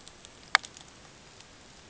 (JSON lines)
{"label": "ambient", "recorder": "HydroMoth"}